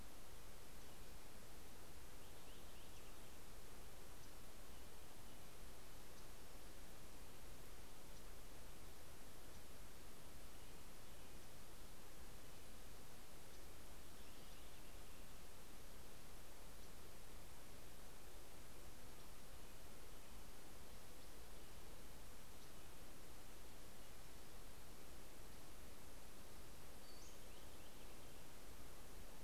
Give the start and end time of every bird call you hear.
1.6s-3.7s: Purple Finch (Haemorhous purpureus)
13.5s-16.2s: Purple Finch (Haemorhous purpureus)
26.3s-29.2s: Purple Finch (Haemorhous purpureus)
26.9s-27.8s: Pacific-slope Flycatcher (Empidonax difficilis)

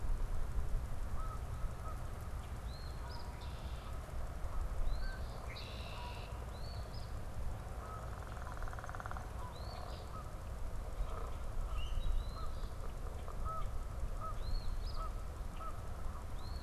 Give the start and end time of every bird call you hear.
0.0s-16.6s: Canada Goose (Branta canadensis)
2.6s-3.4s: Eastern Phoebe (Sayornis phoebe)
4.6s-5.5s: Eastern Phoebe (Sayornis phoebe)
5.4s-6.4s: Red-winged Blackbird (Agelaius phoeniceus)
6.4s-7.2s: Eastern Phoebe (Sayornis phoebe)
9.3s-10.1s: Eastern Phoebe (Sayornis phoebe)
11.6s-12.2s: Common Grackle (Quiscalus quiscula)
12.0s-12.8s: Eastern Phoebe (Sayornis phoebe)
14.2s-15.1s: Eastern Phoebe (Sayornis phoebe)

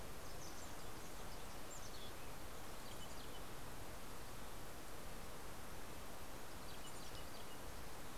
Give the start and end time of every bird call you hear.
0.0s-1.8s: Wilson's Warbler (Cardellina pusilla)
1.6s-3.8s: Mountain Chickadee (Poecile gambeli)
6.2s-8.1s: Mountain Chickadee (Poecile gambeli)

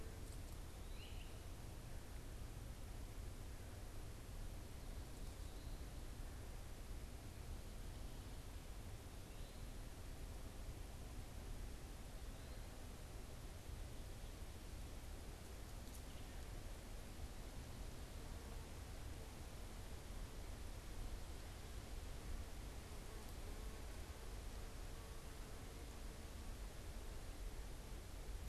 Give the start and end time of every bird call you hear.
0.8s-1.4s: Great Crested Flycatcher (Myiarchus crinitus)

